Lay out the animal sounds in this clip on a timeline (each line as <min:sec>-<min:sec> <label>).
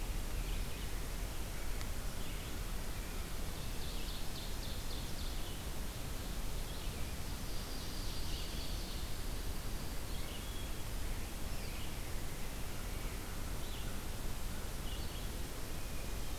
0:00.0-0:04.3 Red-eyed Vireo (Vireo olivaceus)
0:03.4-0:05.5 Ovenbird (Seiurus aurocapilla)
0:05.0-0:15.2 Red-eyed Vireo (Vireo olivaceus)
0:06.8-0:09.3 Ovenbird (Seiurus aurocapilla)
0:08.7-0:10.1 Dark-eyed Junco (Junco hyemalis)
0:15.7-0:16.4 Hermit Thrush (Catharus guttatus)